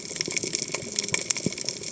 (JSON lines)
{"label": "biophony, cascading saw", "recorder": "HydroMoth"}